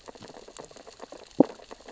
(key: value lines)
label: biophony, sea urchins (Echinidae)
recorder: SoundTrap 600 or HydroMoth